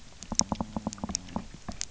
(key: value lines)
label: biophony, knock
recorder: SoundTrap 300